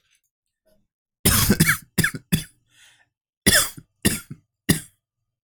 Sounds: Cough